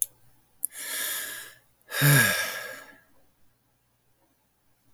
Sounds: Sigh